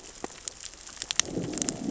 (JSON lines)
{"label": "biophony, growl", "recorder": "SoundTrap 600 or HydroMoth"}